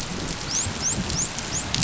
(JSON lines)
{"label": "biophony, dolphin", "recorder": "SoundTrap 500"}